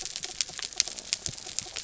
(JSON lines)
{"label": "anthrophony, mechanical", "recorder": "SoundTrap 300"}